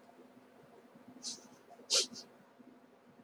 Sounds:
Sniff